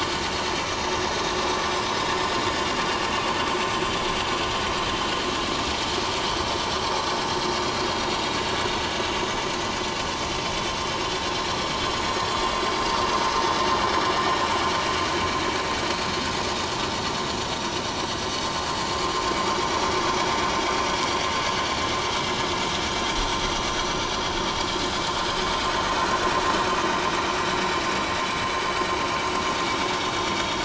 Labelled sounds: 5.4	5.8	vessel noise, 5.2 to 5.5 kHz
12.7	13.0	vessel noise, 4.7 to 4.9 kHz
28.3	28.6	vessel noise, 7.6 to 7.9 kHz
29.5	30.6	vessel noise, 3.2 to 3.7 kHz

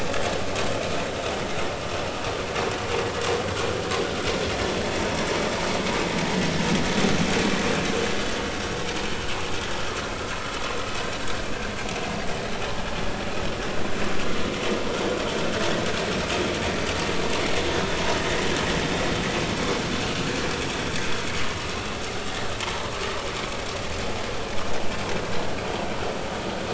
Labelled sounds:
22.6	22.9	vessel noise, 0.86 to 1.1 kHz

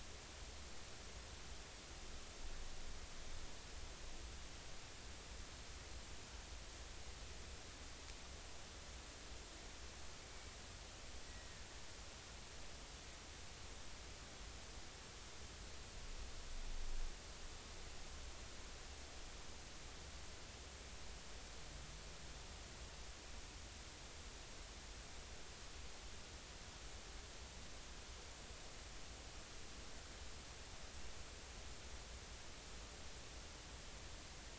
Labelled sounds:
11.2	11.6	killer whale, Bigg's (transient), 1.7 to 2.0 kHz

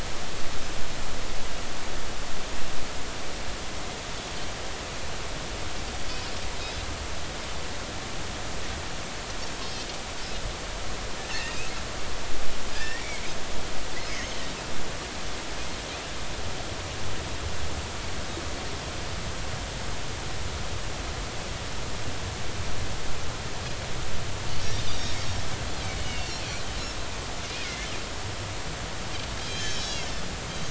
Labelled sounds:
9.6	9.8	Pacific white-sided dolphin, 3.0 to 3.3 kHz
11.2	11.6	Pacific white-sided dolphin, 1.7 to 3.0 kHz
12.8	13.2	Pacific white-sided dolphin, 1.6 to 5.8 kHz
25.0	26.4	Pacific white-sided dolphin, 2.7 to 5.7 kHz
27.6	27.9	Pacific white-sided dolphin, 2.0 to 2.2 kHz
29.4	30.1	Pacific white-sided dolphin, 2.9 to 7.2 kHz

